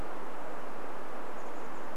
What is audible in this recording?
Chestnut-backed Chickadee call